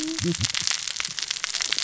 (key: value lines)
label: biophony, cascading saw
recorder: SoundTrap 600 or HydroMoth